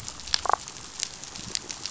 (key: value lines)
label: biophony, damselfish
recorder: SoundTrap 500